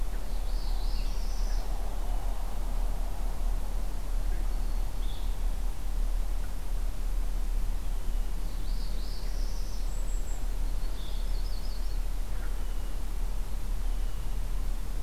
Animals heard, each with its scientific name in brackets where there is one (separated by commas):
Yellow-rumped Warbler (Setophaga coronata), Northern Parula (Setophaga americana), Golden-crowned Kinglet (Regulus satrapa)